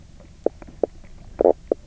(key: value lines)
label: biophony, knock croak
recorder: SoundTrap 300